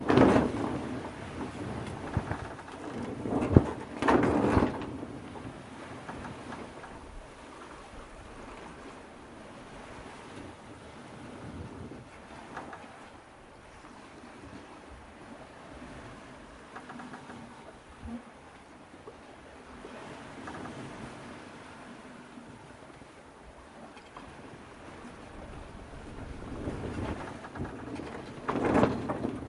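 The sail is opening. 0:00.1 - 0:01.3
Water splashing quietly. 0:05.0 - 0:27.9

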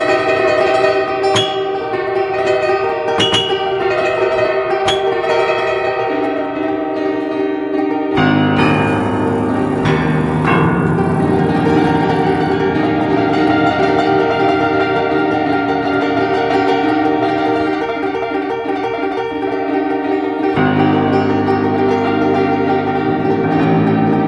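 An out-of-tune piano plays distorted, unsettling notes with a chaotic, broken quality that creates a haunting atmosphere. 0:00.0 - 0:24.3

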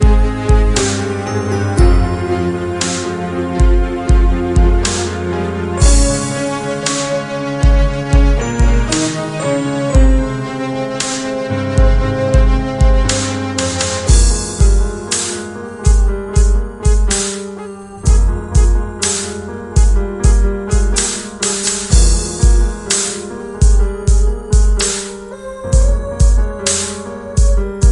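An orchestra plays a melody accompanied by piano, drums, and electronic sounds. 0:00.0 - 0:27.9

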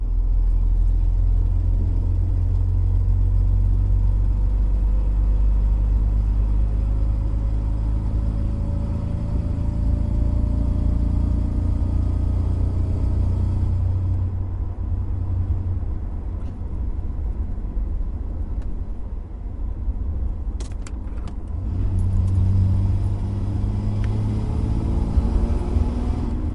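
A truck's exhaust drones constantly in the background. 0:00.0 - 0:26.5
Close vehicular traffic heard from inside a truck cabin. 0:00.0 - 0:26.5
A truck steadily accelerates. 0:00.0 - 0:14.8
A gear shift being manipulated. 0:20.5 - 0:21.3
A truck rapidly accelerates. 0:21.5 - 0:26.5

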